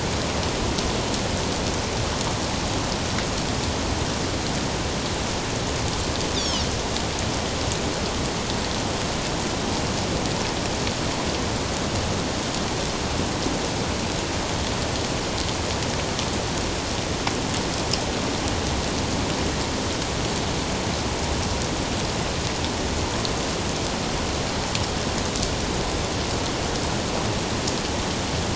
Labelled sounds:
6.3	6.7	Pacific white-sided dolphin, 2.8 to 5.9 kHz

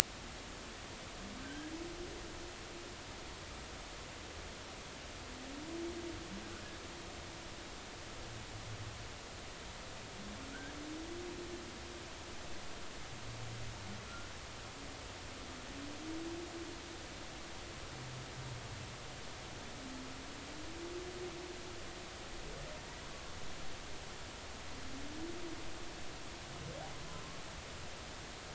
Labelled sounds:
1.4	1.7	humpback whale, 1.5 to 1.7 kHz

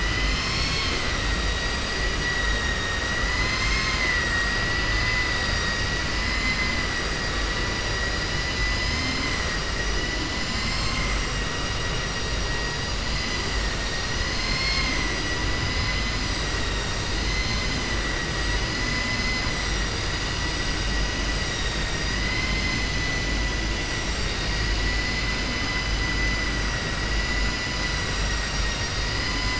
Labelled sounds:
4.6	5.4	vessel noise, 1.0 to 5.1 kHz
6.1	6.7	vessel noise, 1.2 to 5.2 kHz

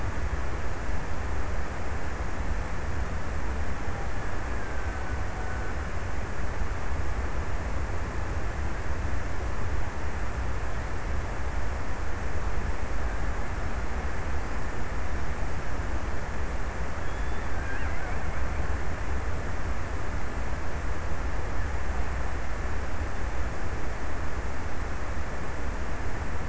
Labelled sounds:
3.9	6.2	killer whale, Bigg's (transient), 0.57 to 2.0 kHz

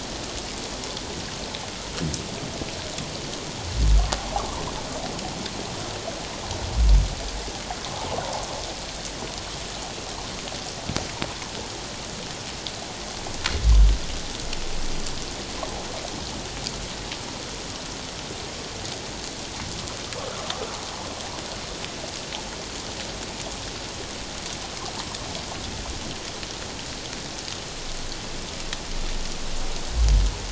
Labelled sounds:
7.9	8.2	water noise, 0.78 to 1.2 kHz

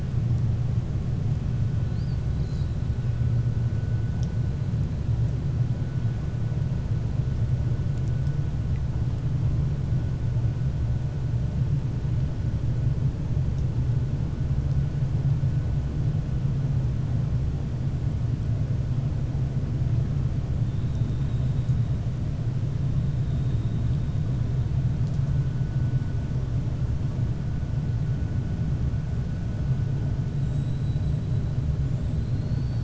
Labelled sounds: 30.3	31.2	killer whale, 3.7 to 7.9 kHz

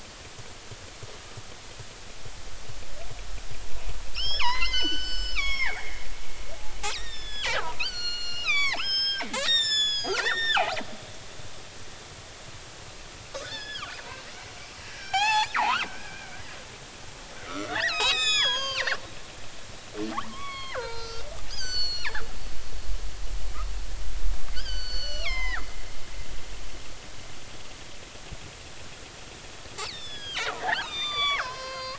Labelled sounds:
4.1	6.0	killer whale, northern resident, G clan, 0.80 to 7.6 kHz
6.9	10.8	killer whale, northern resident, G clan, 0.80 to 8.0 kHz
13.4	14.0	killer whale, northern resident, G clan, 1.1 to 5.4 kHz
14.9	16.4	killer whale, northern resident, G clan, 0.80 to 7.8 kHz
17.5	18.9	killer whale, northern resident, G clan, 0.80 to 8.0 kHz
20.2	22.2	killer whale, northern resident, G clan, 0.80 to 7.7 kHz
24.5	25.7	killer whale, northern resident, G clan, 0.80 to 6.1 kHz
29.8	31.9	killer whale, northern resident, G clan, 0.80 to 7.5 kHz

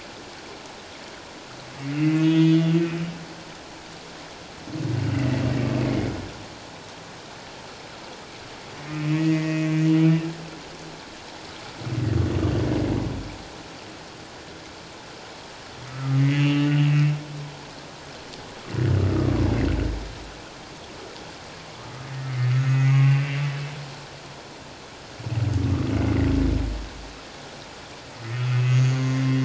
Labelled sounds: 1.9	2.7	humpback whale, 1.9 to 6.6 kHz
5.8	6.1	humpback whale, 2.0 to 2.2 kHz
8.9	10.3	humpback whale, 1.8 to 3.0 kHz
15.9	17.2	humpback whale, 1.1 to 3.0 kHz
19.1	19.4	humpback whale, 1.1 to 1.3 kHz
22.4	23.2	humpback whale, 1.2 to 6.7 kHz
28.3	29.4	humpback whale, 1.9 to 6.7 kHz

